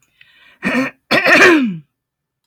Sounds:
Throat clearing